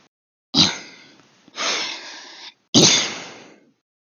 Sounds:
Throat clearing